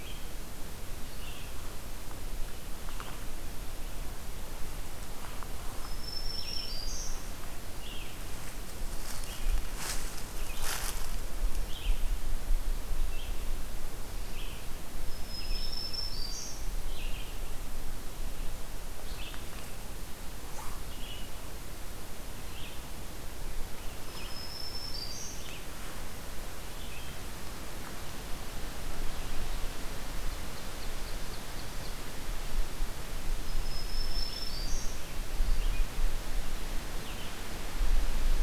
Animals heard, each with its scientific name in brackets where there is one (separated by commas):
Ovenbird (Seiurus aurocapilla), Black-throated Green Warbler (Setophaga virens), Red-eyed Vireo (Vireo olivaceus)